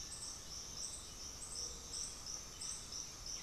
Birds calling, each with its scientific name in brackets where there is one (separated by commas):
Cinereous Tinamou (Crypturellus cinereus)